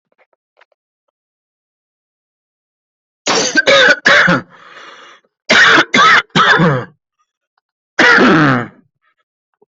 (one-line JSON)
{"expert_labels": [{"quality": "ok", "cough_type": "dry", "dyspnea": false, "wheezing": false, "stridor": false, "choking": false, "congestion": false, "nothing": true, "diagnosis": "COVID-19", "severity": "mild"}, {"quality": "good", "cough_type": "dry", "dyspnea": false, "wheezing": true, "stridor": false, "choking": false, "congestion": false, "nothing": false, "diagnosis": "obstructive lung disease", "severity": "mild"}, {"quality": "good", "cough_type": "wet", "dyspnea": false, "wheezing": false, "stridor": false, "choking": false, "congestion": false, "nothing": true, "diagnosis": "upper respiratory tract infection", "severity": "mild"}, {"quality": "ok", "cough_type": "dry", "dyspnea": false, "wheezing": false, "stridor": false, "choking": false, "congestion": false, "nothing": true, "diagnosis": "COVID-19", "severity": "mild"}], "age": 30, "gender": "female", "respiratory_condition": false, "fever_muscle_pain": false, "status": "healthy"}